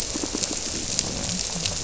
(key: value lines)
label: biophony
recorder: SoundTrap 300